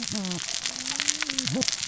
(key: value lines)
label: biophony, cascading saw
recorder: SoundTrap 600 or HydroMoth